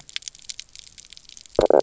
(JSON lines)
{"label": "biophony, knock croak", "recorder": "SoundTrap 300"}